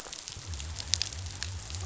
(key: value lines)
label: biophony
recorder: SoundTrap 500